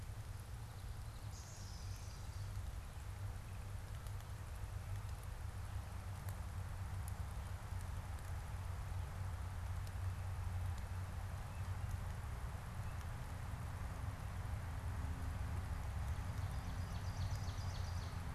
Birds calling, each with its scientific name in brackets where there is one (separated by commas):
Common Yellowthroat (Geothlypis trichas), Ovenbird (Seiurus aurocapilla)